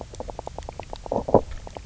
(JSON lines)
{"label": "biophony, knock croak", "recorder": "SoundTrap 300"}